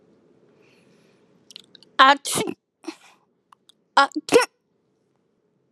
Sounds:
Sneeze